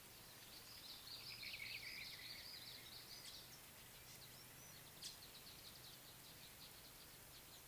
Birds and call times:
Red-faced Crombec (Sylvietta whytii): 0:01.1
Brown-crowned Tchagra (Tchagra australis): 0:01.6

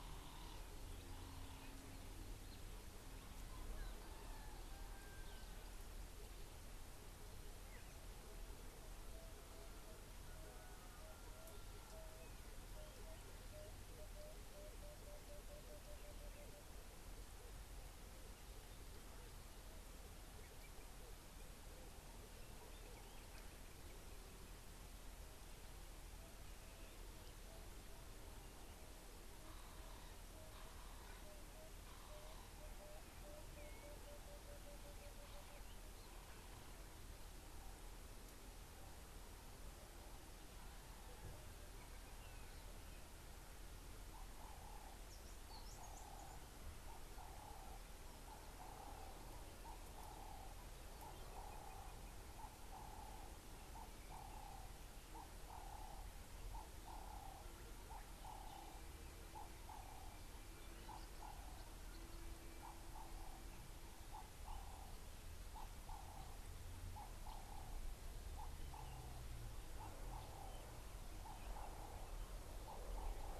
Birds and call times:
Emerald-spotted Wood-Dove (Turtur chalcospilos): 0:15.1, 0:33.0
Ring-necked Dove (Streptopelia capicola): 0:47.6, 0:54.3, 1:04.8

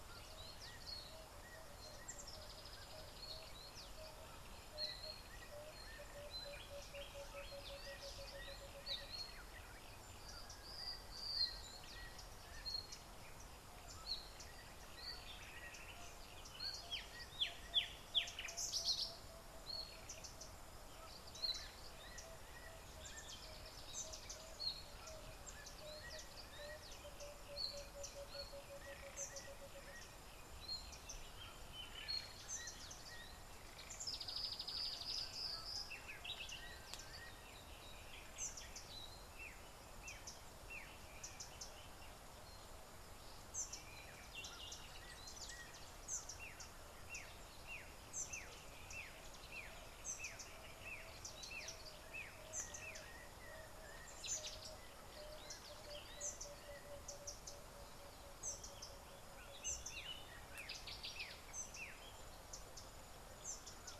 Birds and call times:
Emerald-spotted Wood-Dove (Turtur chalcospilos): 0:06.5
Collared Sunbird (Hedydipna collaris): 0:20.3, 0:32.6, 0:41.4, 0:56.3
Black-backed Puffback (Dryoscopus cubla): 0:49.6

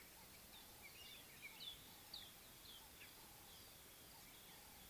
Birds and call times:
White-browed Robin-Chat (Cossypha heuglini): 0:01.0
Scarlet-chested Sunbird (Chalcomitra senegalensis): 0:02.2

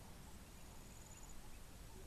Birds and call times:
Ring-necked Dove (Streptopelia capicola): 0:01.9

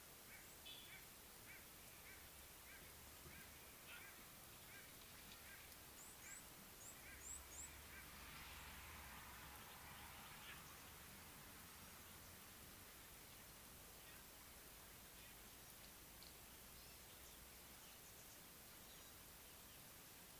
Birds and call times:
White-bellied Go-away-bird (Corythaixoides leucogaster): 0:01.6
Red-cheeked Cordonbleu (Uraeginthus bengalus): 0:06.9

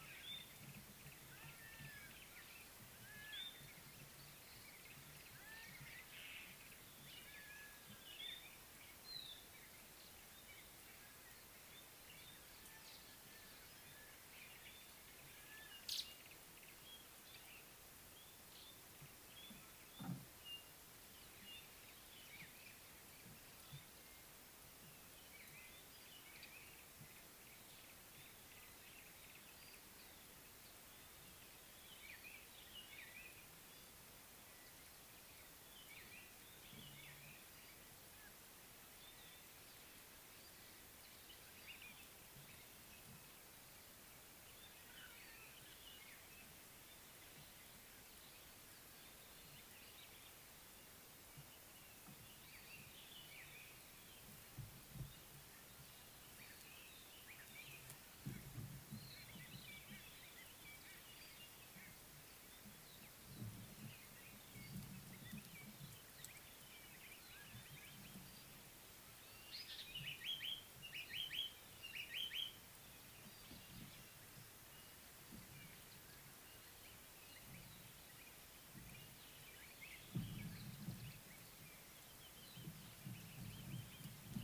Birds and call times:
Yellow-breasted Apalis (Apalis flavida): 0:01.1
White-browed Robin-Chat (Cossypha heuglini): 0:09.3
African Paradise-Flycatcher (Terpsiphone viridis): 1:11.2

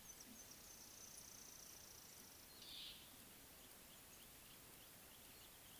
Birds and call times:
Mouse-colored Penduline-Tit (Anthoscopus musculus): 0:01.7
Slate-colored Boubou (Laniarius funebris): 0:02.8

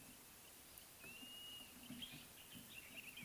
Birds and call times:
Blue-naped Mousebird (Urocolius macrourus): 0:01.3

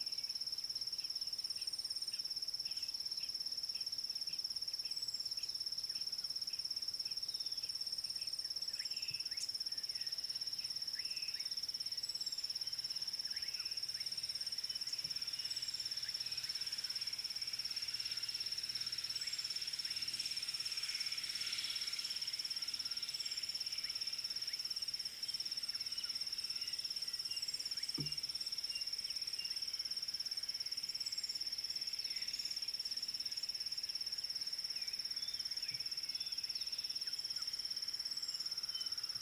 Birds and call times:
Spot-flanked Barbet (Tricholaema lacrymosa): 0:01.0, 0:03.7, 0:07.1

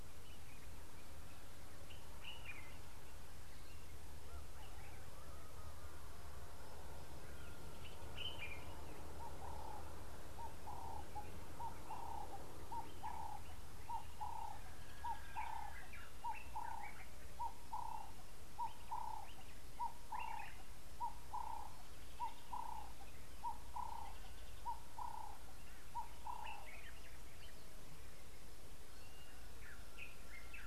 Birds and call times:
Common Bulbul (Pycnonotus barbatus): 0:08.4, 0:16.1
Ring-necked Dove (Streptopelia capicola): 0:17.9

